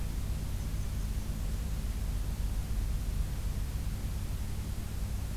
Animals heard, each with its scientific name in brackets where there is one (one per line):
Blackburnian Warbler (Setophaga fusca)